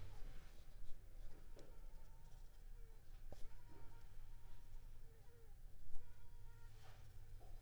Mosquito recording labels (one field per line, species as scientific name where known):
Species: Culex pipiens complex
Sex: female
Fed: unfed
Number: one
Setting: cup